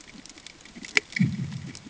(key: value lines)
label: anthrophony, bomb
recorder: HydroMoth